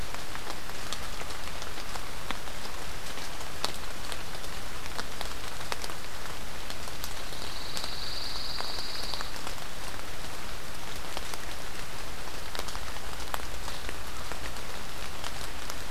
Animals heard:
Pine Warbler (Setophaga pinus)

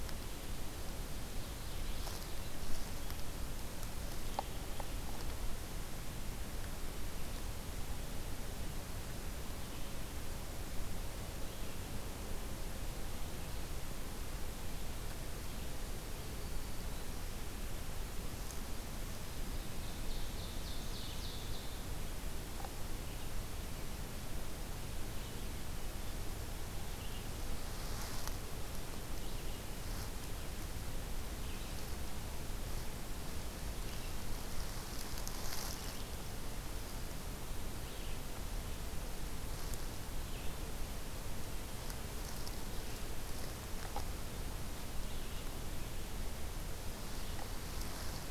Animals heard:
Red-eyed Vireo (Vireo olivaceus)
Ovenbird (Seiurus aurocapilla)

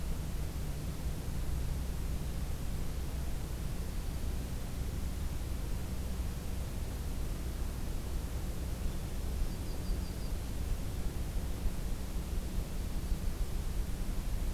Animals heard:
Yellow-rumped Warbler (Setophaga coronata)

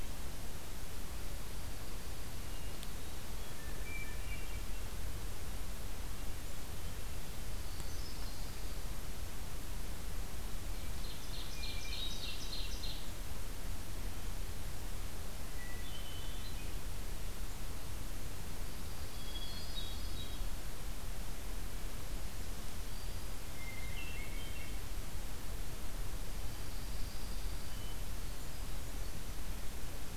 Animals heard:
Ovenbird (Seiurus aurocapilla)
Dark-eyed Junco (Junco hyemalis)
Hermit Thrush (Catharus guttatus)
Black-throated Green Warbler (Setophaga virens)

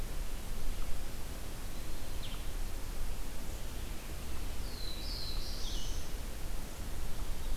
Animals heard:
Black-throated Blue Warbler (Setophaga caerulescens)
Blue-headed Vireo (Vireo solitarius)

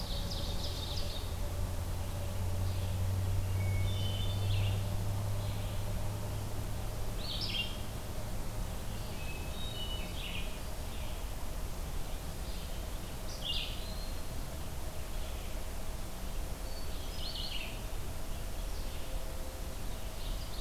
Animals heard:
Ovenbird (Seiurus aurocapilla)
Hermit Thrush (Catharus guttatus)
Red-eyed Vireo (Vireo olivaceus)

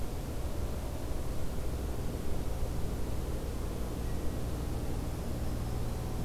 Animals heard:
Black-throated Green Warbler (Setophaga virens)

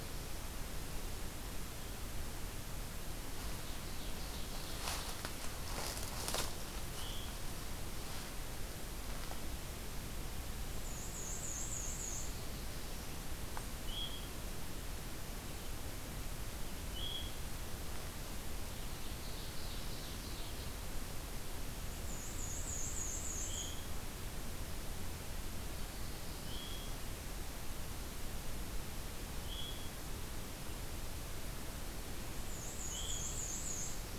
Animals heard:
Ovenbird (Seiurus aurocapilla)
Black-and-white Warbler (Mniotilta varia)
Veery (Catharus fuscescens)
Black-throated Blue Warbler (Setophaga caerulescens)

